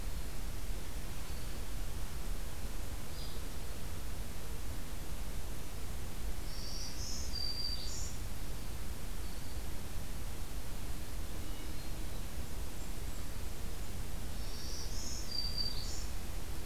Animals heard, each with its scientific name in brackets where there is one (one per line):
Black-throated Green Warbler (Setophaga virens)
Hermit Thrush (Catharus guttatus)
Blackburnian Warbler (Setophaga fusca)